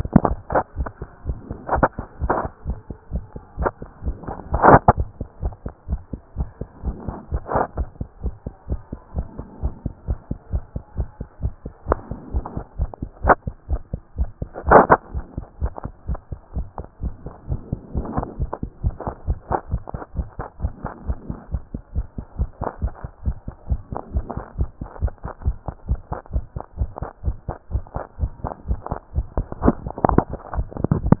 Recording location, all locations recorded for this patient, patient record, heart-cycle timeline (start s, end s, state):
tricuspid valve (TV)
aortic valve (AV)+pulmonary valve (PV)+tricuspid valve (TV)+mitral valve (MV)
#Age: Child
#Sex: Male
#Height: 131.0 cm
#Weight: 26.5 kg
#Pregnancy status: False
#Murmur: Absent
#Murmur locations: nan
#Most audible location: nan
#Systolic murmur timing: nan
#Systolic murmur shape: nan
#Systolic murmur grading: nan
#Systolic murmur pitch: nan
#Systolic murmur quality: nan
#Diastolic murmur timing: nan
#Diastolic murmur shape: nan
#Diastolic murmur grading: nan
#Diastolic murmur pitch: nan
#Diastolic murmur quality: nan
#Outcome: Normal
#Campaign: 2014 screening campaign
0.00	15.27	unannotated
15.27	15.36	systole
15.36	15.44	S2
15.44	15.60	diastole
15.60	15.72	S1
15.72	15.84	systole
15.84	15.92	S2
15.92	16.08	diastole
16.08	16.20	S1
16.20	16.30	systole
16.30	16.38	S2
16.38	16.56	diastole
16.56	16.66	S1
16.66	16.78	systole
16.78	16.86	S2
16.86	17.02	diastole
17.02	17.14	S1
17.14	17.24	systole
17.24	17.32	S2
17.32	17.48	diastole
17.48	17.60	S1
17.60	17.70	systole
17.70	17.80	S2
17.80	17.94	diastole
17.94	18.06	S1
18.06	18.16	systole
18.16	18.26	S2
18.26	18.38	diastole
18.38	18.50	S1
18.50	18.62	systole
18.62	18.70	S2
18.70	18.84	diastole
18.84	18.94	S1
18.94	19.04	systole
19.04	19.14	S2
19.14	19.26	diastole
19.26	19.38	S1
19.38	19.50	systole
19.50	19.58	S2
19.58	19.70	diastole
19.70	19.82	S1
19.82	19.92	systole
19.92	20.00	S2
20.00	20.16	diastole
20.16	20.28	S1
20.28	20.38	systole
20.38	20.46	S2
20.46	20.62	diastole
20.62	20.72	S1
20.72	20.82	systole
20.82	20.92	S2
20.92	21.06	diastole
21.06	21.18	S1
21.18	21.28	systole
21.28	21.38	S2
21.38	21.52	diastole
21.52	21.62	S1
21.62	21.72	systole
21.72	21.82	S2
21.82	21.94	diastole
21.94	22.06	S1
22.06	22.16	systole
22.16	22.24	S2
22.24	22.38	diastole
22.38	22.50	S1
22.50	22.60	systole
22.60	22.68	S2
22.68	22.82	diastole
22.82	22.92	S1
22.92	23.02	systole
23.02	23.10	S2
23.10	23.26	diastole
23.26	23.36	S1
23.36	23.46	systole
23.46	23.54	S2
23.54	23.70	diastole
23.70	23.80	S1
23.80	23.90	systole
23.90	24.00	S2
24.00	24.14	diastole
24.14	24.24	S1
24.24	24.34	systole
24.34	24.44	S2
24.44	24.58	diastole
24.58	24.68	S1
24.68	24.80	systole
24.80	24.88	S2
24.88	25.02	diastole
25.02	25.12	S1
25.12	25.22	systole
25.22	25.30	S2
25.30	25.44	diastole
25.44	25.56	S1
25.56	25.66	systole
25.66	25.74	S2
25.74	25.88	diastole
25.88	26.00	S1
26.00	26.10	systole
26.10	26.18	S2
26.18	26.34	diastole
26.34	26.44	S1
26.44	26.54	systole
26.54	26.62	S2
26.62	26.78	diastole
26.78	26.90	S1
26.90	27.00	systole
27.00	27.08	S2
27.08	27.24	diastole
27.24	27.36	S1
27.36	27.48	systole
27.48	27.56	S2
27.56	27.72	diastole
27.72	27.84	S1
27.84	27.94	systole
27.94	28.02	S2
28.02	28.20	diastole
28.20	28.32	S1
28.32	28.42	systole
28.42	28.52	S2
28.52	28.68	diastole
28.68	28.80	S1
28.80	28.90	systole
28.90	28.98	S2
28.98	29.07	diastole
29.07	31.20	unannotated